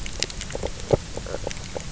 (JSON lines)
{"label": "biophony, knock croak", "recorder": "SoundTrap 300"}